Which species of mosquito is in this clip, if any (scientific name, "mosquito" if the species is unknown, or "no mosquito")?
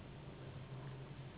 Anopheles gambiae s.s.